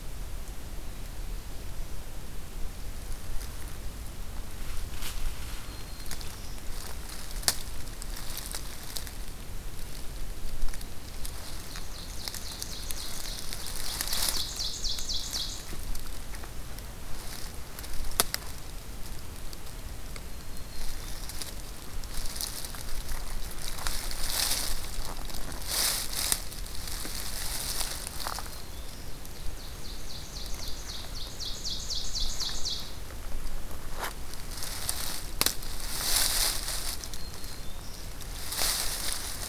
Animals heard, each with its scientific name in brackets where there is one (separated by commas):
Ovenbird (Seiurus aurocapilla), Black-throated Green Warbler (Setophaga virens), Black-throated Blue Warbler (Setophaga caerulescens)